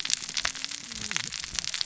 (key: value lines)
label: biophony, cascading saw
recorder: SoundTrap 600 or HydroMoth